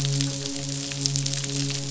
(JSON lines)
{"label": "biophony, midshipman", "recorder": "SoundTrap 500"}